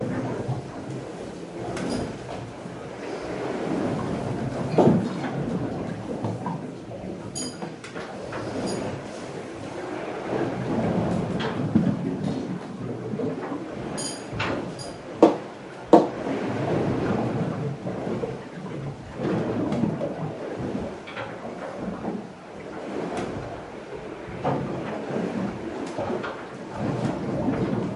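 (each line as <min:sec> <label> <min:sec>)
0:00.0 Sailboat moving through the water. 0:28.0
0:04.6 Loud knocking on a hard surface. 0:05.3
0:07.0 Metal pieces clanging loudly. 0:09.1
0:13.6 Metal pieces clanging loudly. 0:15.3
0:14.9 Loud knocking on a hard surface. 0:16.3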